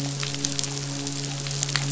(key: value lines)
label: biophony, midshipman
recorder: SoundTrap 500